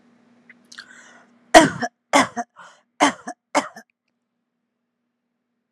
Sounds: Cough